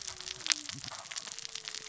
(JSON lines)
{"label": "biophony, cascading saw", "recorder": "SoundTrap 600 or HydroMoth"}